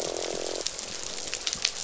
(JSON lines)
{"label": "biophony, croak", "recorder": "SoundTrap 500"}